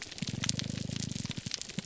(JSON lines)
{"label": "biophony, grouper groan", "recorder": "SoundTrap 300"}